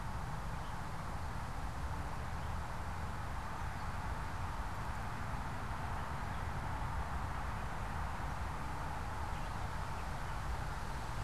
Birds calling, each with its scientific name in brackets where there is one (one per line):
unidentified bird